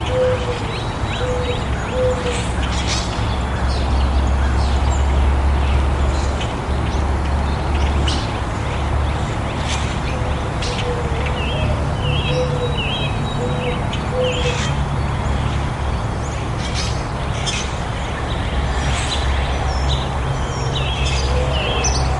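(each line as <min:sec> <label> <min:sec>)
0:00.0 A mourning dove cooing in the distance. 0:03.0
0:00.0 Birds chirping and singing in the distance. 0:22.2
0:02.5 A bird chirping nearby. 0:03.6
0:16.4 A bird chirping nearby. 0:17.4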